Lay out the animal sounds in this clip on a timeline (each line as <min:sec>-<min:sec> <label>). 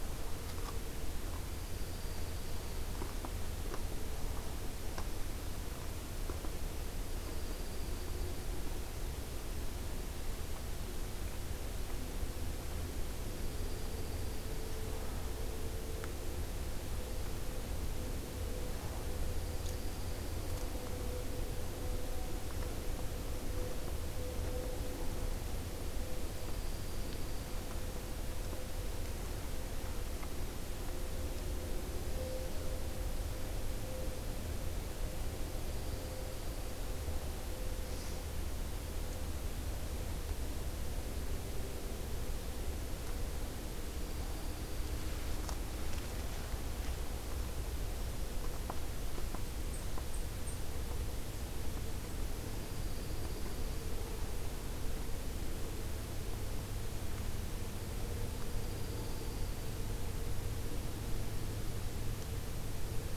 0:01.2-0:03.3 Dark-eyed Junco (Junco hyemalis)
0:06.6-0:08.8 Dark-eyed Junco (Junco hyemalis)
0:13.1-0:14.8 Dark-eyed Junco (Junco hyemalis)
0:19.0-0:21.2 Dark-eyed Junco (Junco hyemalis)
0:25.9-0:27.7 Dark-eyed Junco (Junco hyemalis)
0:35.4-0:37.2 Dark-eyed Junco (Junco hyemalis)
0:43.7-0:45.3 Dark-eyed Junco (Junco hyemalis)
0:49.3-0:50.7 Blackburnian Warbler (Setophaga fusca)
0:52.2-0:54.1 Dark-eyed Junco (Junco hyemalis)
0:58.1-0:59.9 Dark-eyed Junco (Junco hyemalis)